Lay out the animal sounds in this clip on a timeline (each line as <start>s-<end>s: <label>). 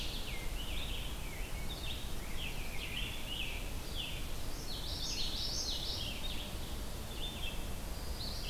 0.0s-4.3s: Scarlet Tanager (Piranga olivacea)
0.0s-8.5s: Red-eyed Vireo (Vireo olivaceus)
4.5s-6.1s: Common Yellowthroat (Geothlypis trichas)
7.8s-8.5s: Pine Warbler (Setophaga pinus)